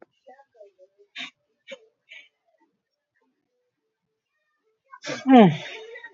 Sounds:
Sniff